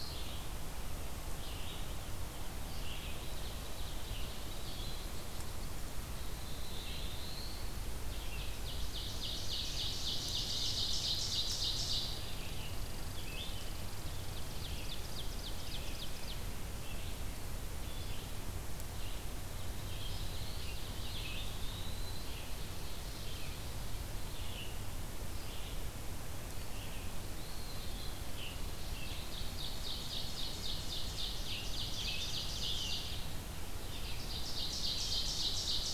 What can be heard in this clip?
Red-eyed Vireo, Ovenbird, Black-throated Blue Warbler, Chipping Sparrow, Eastern Wood-Pewee